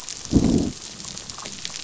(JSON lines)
{"label": "biophony, growl", "recorder": "SoundTrap 500"}